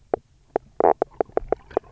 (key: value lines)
label: biophony, knock croak
recorder: SoundTrap 300